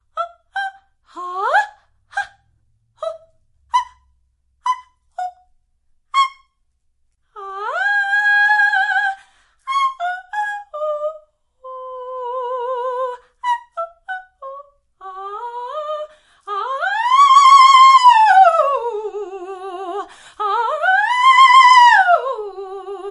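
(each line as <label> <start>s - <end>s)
A woman singing in very high tones. 0.0s - 23.1s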